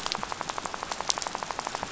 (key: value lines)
label: biophony, rattle
recorder: SoundTrap 500